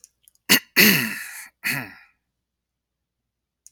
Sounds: Throat clearing